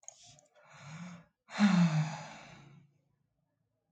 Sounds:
Sigh